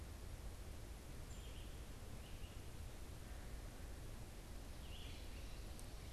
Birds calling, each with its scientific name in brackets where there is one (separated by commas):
Red-eyed Vireo (Vireo olivaceus), unidentified bird